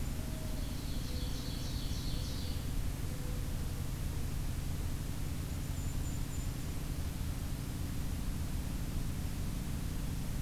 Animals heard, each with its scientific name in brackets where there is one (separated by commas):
Mourning Dove (Zenaida macroura), Ovenbird (Seiurus aurocapilla), Golden-crowned Kinglet (Regulus satrapa)